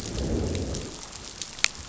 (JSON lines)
{"label": "biophony, growl", "recorder": "SoundTrap 500"}